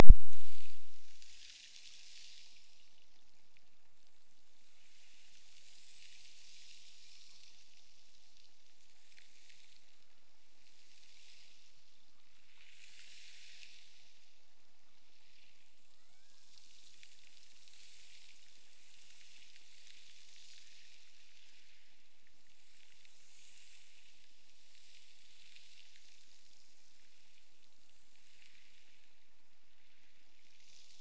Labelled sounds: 15.9	16.7	killer whale, Bigg's (transient), Gulf of Alaska transient, 0.89 to 2.6 kHz

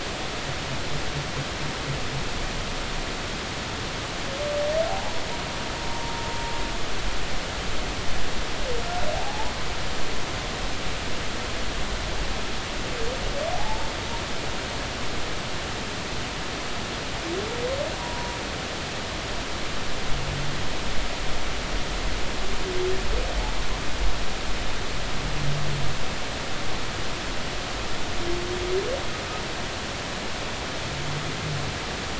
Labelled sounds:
4.9	5.2	humpback whale, 0.80 to 0.99 kHz
9.1	9.5	humpback whale, 0.80 to 1.0 kHz
13.5	13.9	humpback whale, 0.80 to 0.99 kHz
18.0	18.4	humpback whale, 0.90 to 1.0 kHz

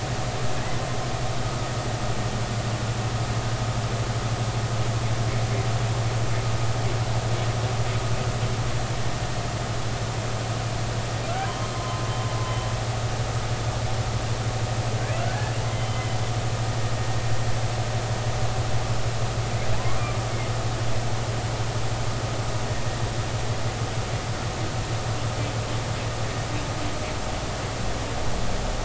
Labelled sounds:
11.8	12.0	humpback whale, 0.99 to 1.2 kHz
15.2	16.0	humpback whale, 1.3 to 3.2 kHz

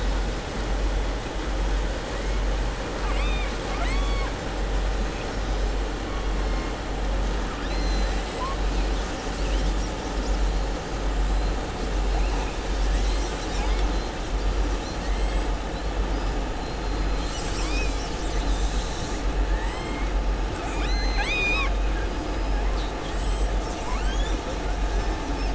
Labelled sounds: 2.9	4.3	killer whale, southern resident, 0.70 to 8.0 kHz
7.5	8.6	killer whale, southern resident, 1.0 to 7.7 kHz
19.5	20.1	killer whale, southern resident, 0.90 to 4.2 kHz
20.5	21.8	killer whale, southern resident, 0.81 to 7.9 kHz
24.9	25.5	killer whale, southern resident, 4.7 to 6.3 kHz

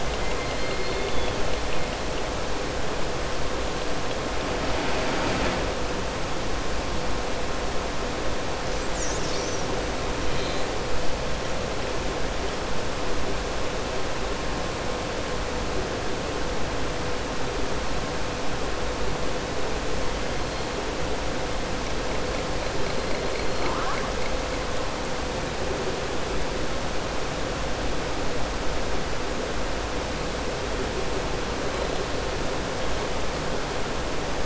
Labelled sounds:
0.0	1.3	killer whale, southern resident, 2.0 to 4.5 kHz

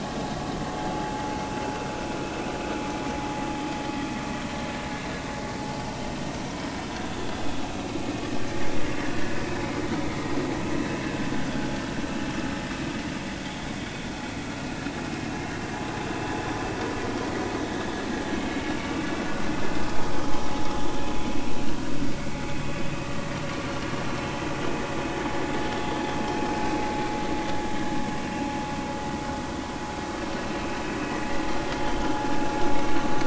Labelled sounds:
9.1	9.4	vessel noise, 1.4 to 1.5 kHz
30.4	30.6	vessel noise, 2.6 to 2.8 kHz
32.7	33.0	vessel noise, 2.1 to 2.3 kHz

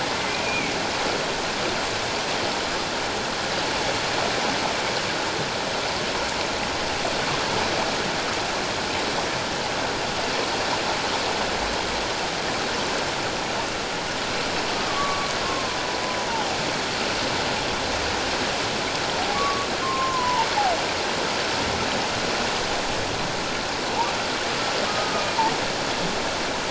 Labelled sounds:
0.3	0.8	humpback whale, 2.1 to 2.6 kHz
14.7	15.8	humpback whale, 0.97 to 1.3 kHz
16.3	16.6	humpback whale, 0.78 to 0.97 kHz
19.3	20.5	humpback whale, 0.84 to 1.2 kHz
24.9	25.3	humpback whale, 1.1 to 1.3 kHz

